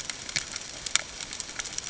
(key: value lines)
label: ambient
recorder: HydroMoth